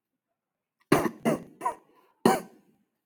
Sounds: Cough